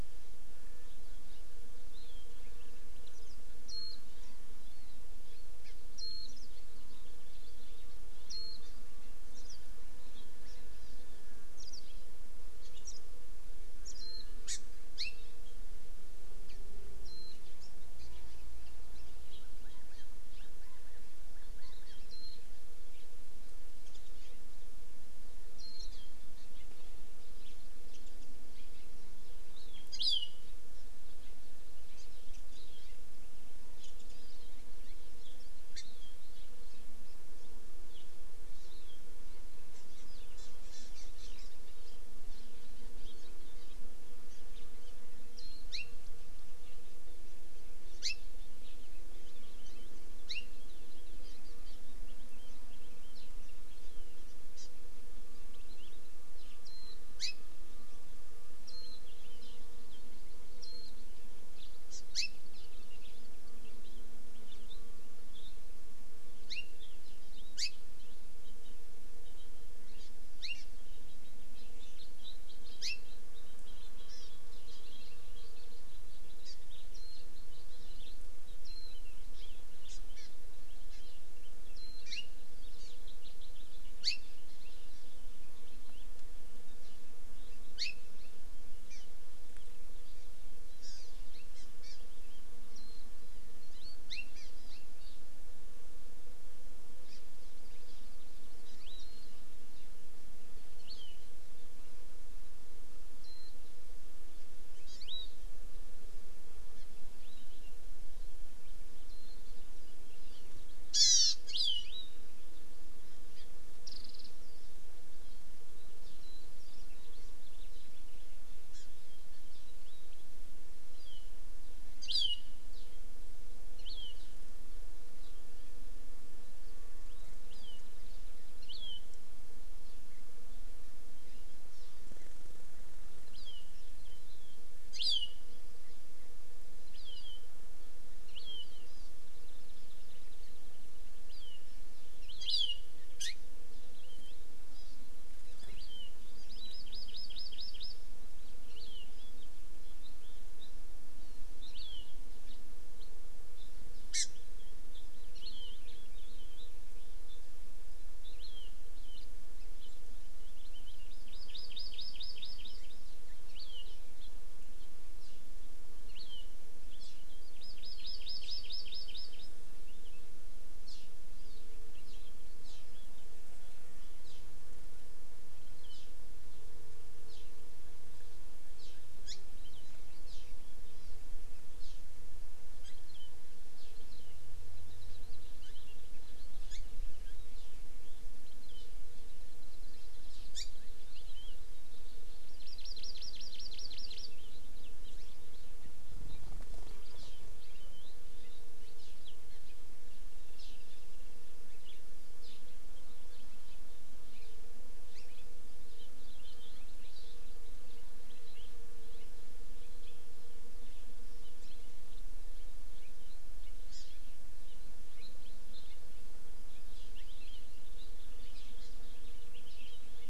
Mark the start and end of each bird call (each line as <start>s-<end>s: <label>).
1.9s-2.3s: Hawaii Amakihi (Chlorodrepanis virens)
3.7s-4.0s: Warbling White-eye (Zosterops japonicus)
5.6s-5.7s: Hawaii Amakihi (Chlorodrepanis virens)
6.0s-6.3s: Warbling White-eye (Zosterops japonicus)
6.5s-7.9s: House Finch (Haemorhous mexicanus)
8.3s-8.6s: Warbling White-eye (Zosterops japonicus)
9.4s-9.6s: Warbling White-eye (Zosterops japonicus)
11.6s-11.8s: Warbling White-eye (Zosterops japonicus)
12.8s-13.0s: Warbling White-eye (Zosterops japonicus)
14.0s-14.2s: Warbling White-eye (Zosterops japonicus)
14.4s-14.6s: Hawaii Amakihi (Chlorodrepanis virens)
15.0s-15.2s: Hawaii Amakihi (Chlorodrepanis virens)
17.0s-17.3s: Warbling White-eye (Zosterops japonicus)
19.6s-20.0s: California Quail (Callipepla californica)
20.3s-20.5s: Hawaii Amakihi (Chlorodrepanis virens)
20.6s-21.0s: California Quail (Callipepla californica)
21.3s-22.0s: California Quail (Callipepla californica)
21.8s-22.0s: Hawaii Amakihi (Chlorodrepanis virens)
22.1s-22.4s: Warbling White-eye (Zosterops japonicus)
25.6s-25.8s: Warbling White-eye (Zosterops japonicus)
29.5s-30.4s: Hawaii Amakihi (Chlorodrepanis virens)
32.0s-32.1s: Hawaii Amakihi (Chlorodrepanis virens)
32.5s-33.0s: Hawaii Amakihi (Chlorodrepanis virens)
33.8s-34.4s: Hawaii Amakihi (Chlorodrepanis virens)
35.7s-35.8s: Hawaii Amakihi (Chlorodrepanis virens)
38.5s-39.0s: Hawaii Amakihi (Chlorodrepanis virens)
40.4s-41.5s: Hawaii Amakihi (Chlorodrepanis virens)
44.3s-44.4s: Hawaii Amakihi (Chlorodrepanis virens)
45.4s-45.6s: Warbling White-eye (Zosterops japonicus)
45.7s-46.0s: Hawaii Amakihi (Chlorodrepanis virens)
48.0s-48.2s: Hawaii Amakihi (Chlorodrepanis virens)
50.3s-50.5s: Hawaii Amakihi (Chlorodrepanis virens)
54.6s-54.7s: Hawaii Amakihi (Chlorodrepanis virens)
56.6s-56.9s: Warbling White-eye (Zosterops japonicus)
57.2s-57.4s: Hawaii Amakihi (Chlorodrepanis virens)
58.7s-59.0s: Warbling White-eye (Zosterops japonicus)
59.4s-59.6s: Hawaii Amakihi (Chlorodrepanis virens)
60.6s-60.9s: Warbling White-eye (Zosterops japonicus)
61.9s-62.3s: Hawaii Amakihi (Chlorodrepanis virens)
66.5s-66.7s: Hawaii Amakihi (Chlorodrepanis virens)
67.6s-67.7s: Hawaii Amakihi (Chlorodrepanis virens)
70.0s-70.1s: Hawaii Amakihi (Chlorodrepanis virens)
70.4s-70.7s: Hawaii Amakihi (Chlorodrepanis virens)
72.8s-73.0s: Hawaii Amakihi (Chlorodrepanis virens)
74.1s-74.3s: Hawaii Amakihi (Chlorodrepanis virens)
76.4s-76.5s: Hawaii Amakihi (Chlorodrepanis virens)